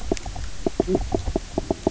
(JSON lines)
{"label": "biophony, knock croak", "recorder": "SoundTrap 300"}